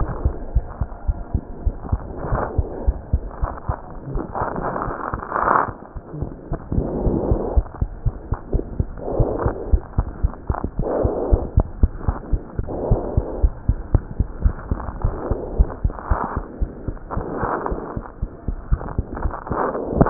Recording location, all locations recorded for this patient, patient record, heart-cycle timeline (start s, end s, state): aortic valve (AV)
aortic valve (AV)+pulmonary valve (PV)+tricuspid valve (TV)+mitral valve (MV)
#Age: Child
#Sex: Female
#Height: 96.0 cm
#Weight: 13.9 kg
#Pregnancy status: False
#Murmur: Absent
#Murmur locations: nan
#Most audible location: nan
#Systolic murmur timing: nan
#Systolic murmur shape: nan
#Systolic murmur grading: nan
#Systolic murmur pitch: nan
#Systolic murmur quality: nan
#Diastolic murmur timing: nan
#Diastolic murmur shape: nan
#Diastolic murmur grading: nan
#Diastolic murmur pitch: nan
#Diastolic murmur quality: nan
#Outcome: Normal
#Campaign: 2015 screening campaign
0.00	12.15	unannotated
12.15	12.29	diastole
12.29	12.39	S1
12.39	12.57	systole
12.57	12.69	S2
12.69	12.87	diastole
12.87	13.01	S1
13.01	13.15	systole
13.15	13.25	S2
13.25	13.37	diastole
13.37	13.53	S1
13.53	13.65	systole
13.65	13.79	S2
13.79	13.91	diastole
13.91	14.03	S1
14.03	14.15	systole
14.15	14.27	S2
14.27	14.41	diastole
14.41	14.55	S1
14.55	14.67	systole
14.67	14.81	S2
14.81	14.99	diastole
14.99	15.15	S1
15.15	15.29	systole
15.29	15.37	S2
15.37	15.53	diastole
15.53	15.69	S1
15.69	15.81	systole
15.81	15.91	S2
15.91	16.07	diastole
16.07	16.19	S1
16.19	16.35	systole
16.35	16.43	S2
16.43	16.59	diastole
16.59	16.71	S1
16.71	16.87	systole
16.87	16.95	S2
16.95	17.13	diastole
17.13	17.23	S1
17.23	17.41	systole
17.41	17.51	S2
17.51	17.69	diastole
17.69	17.81	S1
17.81	17.95	systole
17.95	18.03	S2
18.03	18.21	diastole
18.21	18.29	S1
18.29	18.47	systole
18.47	18.55	S2
18.55	18.69	diastole
18.69	18.83	S1
18.83	18.95	systole
18.95	19.05	S2
19.05	19.21	diastole
19.21	19.33	S1
19.33	19.51	systole
19.51	19.59	S2
19.59	19.75	diastole
19.75	20.10	unannotated